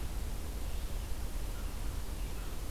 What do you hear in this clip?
Red-eyed Vireo, American Crow